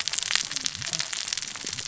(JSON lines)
{"label": "biophony, cascading saw", "recorder": "SoundTrap 600 or HydroMoth"}